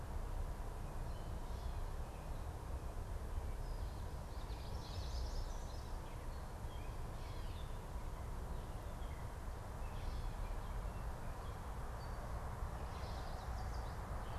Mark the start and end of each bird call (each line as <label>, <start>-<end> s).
Common Yellowthroat (Geothlypis trichas), 4.0-5.3 s
Yellow Warbler (Setophaga petechia), 4.5-6.2 s
Gray Catbird (Dumetella carolinensis), 6.5-7.8 s
Gray Catbird (Dumetella carolinensis), 8.8-12.2 s
Yellow Warbler (Setophaga petechia), 12.8-14.1 s